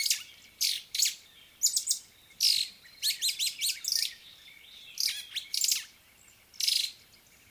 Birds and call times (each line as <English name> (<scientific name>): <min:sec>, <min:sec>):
White-browed Sparrow-Weaver (Plocepasser mahali): 0:03.6